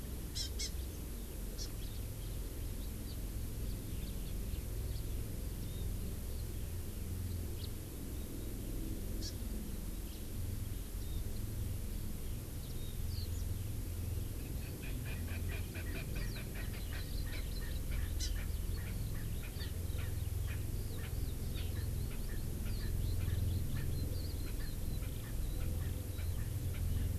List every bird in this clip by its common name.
Hawaii Amakihi, House Finch, Warbling White-eye, Eurasian Skylark, Erckel's Francolin